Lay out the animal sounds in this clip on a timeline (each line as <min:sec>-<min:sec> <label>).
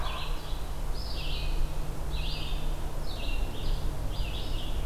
0:00.0-0:00.8 Wild Turkey (Meleagris gallopavo)
0:00.0-0:04.9 Red-eyed Vireo (Vireo olivaceus)